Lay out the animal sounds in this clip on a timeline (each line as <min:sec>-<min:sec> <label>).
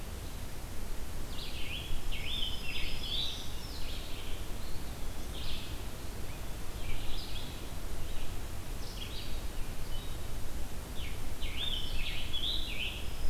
0:01.2-0:03.5 Scarlet Tanager (Piranga olivacea)
0:01.8-0:03.9 Black-throated Green Warbler (Setophaga virens)
0:03.7-0:04.6 Red-eyed Vireo (Vireo olivaceus)
0:04.5-0:06.1 Eastern Wood-Pewee (Contopus virens)
0:05.2-0:13.3 Blue-headed Vireo (Vireo solitarius)
0:10.8-0:13.2 Scarlet Tanager (Piranga olivacea)